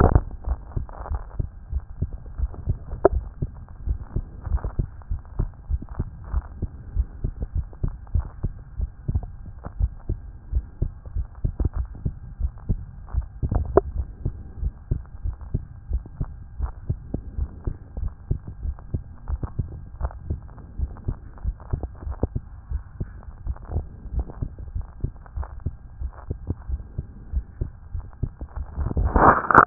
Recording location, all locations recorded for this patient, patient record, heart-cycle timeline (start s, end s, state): tricuspid valve (TV)
aortic valve (AV)+pulmonary valve (PV)+tricuspid valve (TV)+mitral valve (MV)
#Age: Child
#Sex: Male
#Height: 121.0 cm
#Weight: 20.7 kg
#Pregnancy status: False
#Murmur: Absent
#Murmur locations: nan
#Most audible location: nan
#Systolic murmur timing: nan
#Systolic murmur shape: nan
#Systolic murmur grading: nan
#Systolic murmur pitch: nan
#Systolic murmur quality: nan
#Diastolic murmur timing: nan
#Diastolic murmur shape: nan
#Diastolic murmur grading: nan
#Diastolic murmur pitch: nan
#Diastolic murmur quality: nan
#Outcome: Normal
#Campaign: 2014 screening campaign
0.00	14.34	unannotated
14.34	14.60	diastole
14.60	14.74	S1
14.74	14.90	systole
14.90	15.04	S2
15.04	15.26	diastole
15.26	15.36	S1
15.36	15.52	systole
15.52	15.62	S2
15.62	15.88	diastole
15.88	16.02	S1
16.02	16.18	systole
16.18	16.30	S2
16.30	16.58	diastole
16.58	16.72	S1
16.72	16.88	systole
16.88	17.02	S2
17.02	17.32	diastole
17.32	17.50	S1
17.50	17.62	systole
17.62	17.74	S2
17.74	17.96	diastole
17.96	18.14	S1
18.14	18.28	systole
18.28	18.40	S2
18.40	18.62	diastole
18.62	18.76	S1
18.76	18.90	systole
18.90	19.04	S2
19.04	19.28	diastole
19.28	19.42	S1
19.42	19.58	systole
19.58	19.72	S2
19.72	19.98	diastole
19.98	20.12	S1
20.12	20.28	systole
20.28	20.42	S2
20.42	20.74	diastole
20.74	20.92	S1
20.92	21.06	systole
21.06	21.16	S2
21.16	21.42	diastole
21.42	21.56	S1
21.56	21.68	systole
21.68	21.82	S2
21.82	22.06	diastole
22.06	22.18	S1
22.18	22.34	systole
22.34	22.44	S2
22.44	22.70	diastole
22.70	22.84	S1
22.84	23.00	systole
23.00	23.14	S2
23.14	23.44	diastole
23.44	23.58	S1
23.58	23.72	systole
23.72	23.86	S2
23.86	24.10	diastole
24.10	24.26	S1
24.26	24.38	systole
24.38	24.48	S2
24.48	24.74	diastole
24.74	24.88	S1
24.88	25.00	systole
25.00	25.10	S2
25.10	25.36	diastole
25.36	25.48	S1
25.48	25.62	systole
25.62	25.76	S2
25.76	26.00	diastole
26.00	26.12	S1
26.12	26.30	systole
26.30	26.42	S2
26.42	26.68	diastole
26.68	26.82	S1
26.82	26.98	systole
26.98	27.08	S2
27.08	27.32	diastole
27.32	27.46	S1
27.46	27.60	systole
27.60	27.70	S2
27.70	27.94	diastole
27.94	28.08	S1
28.08	28.22	systole
28.22	29.66	unannotated